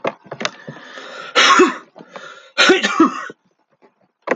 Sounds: Sneeze